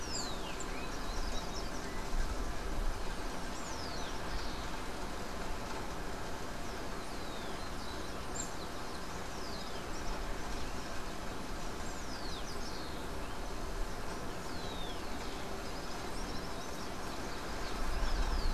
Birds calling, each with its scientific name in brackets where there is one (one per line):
Rufous-collared Sparrow (Zonotrichia capensis)
Common Tody-Flycatcher (Todirostrum cinereum)